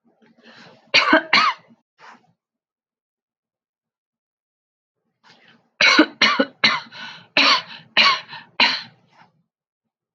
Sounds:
Cough